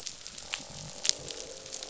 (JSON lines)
{"label": "biophony, croak", "recorder": "SoundTrap 500"}